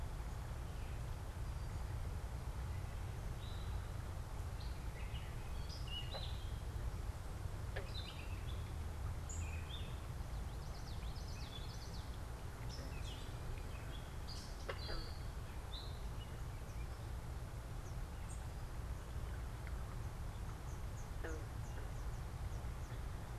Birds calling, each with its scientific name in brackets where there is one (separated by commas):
Gray Catbird (Dumetella carolinensis), Common Yellowthroat (Geothlypis trichas), Eastern Towhee (Pipilo erythrophthalmus)